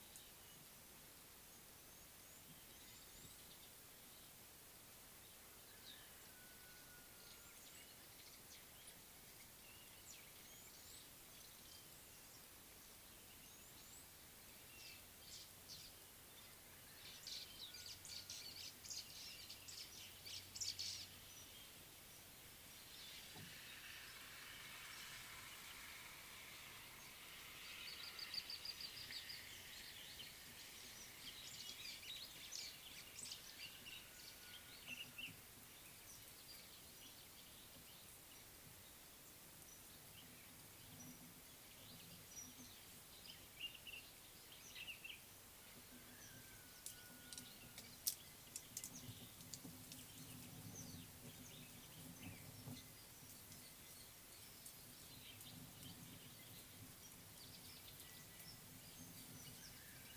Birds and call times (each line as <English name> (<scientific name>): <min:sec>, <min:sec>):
White-browed Sparrow-Weaver (Plocepasser mahali): 0:19.0
Superb Starling (Lamprotornis superbus): 0:28.5